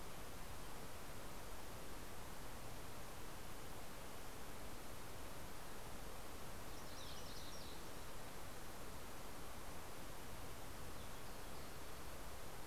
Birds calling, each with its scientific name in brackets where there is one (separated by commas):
MacGillivray's Warbler (Geothlypis tolmiei), Ruby-crowned Kinglet (Corthylio calendula)